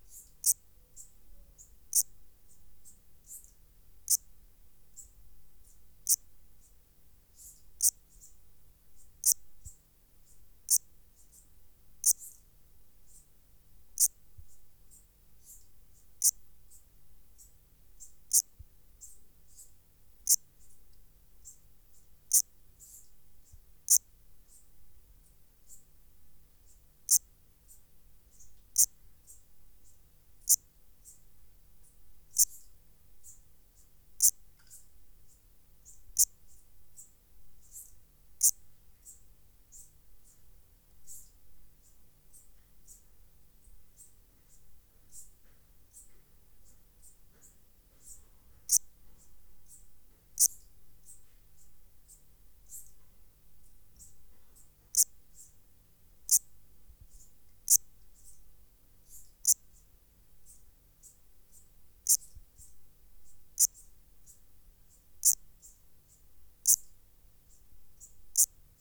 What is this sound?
Eupholidoptera garganica, an orthopteran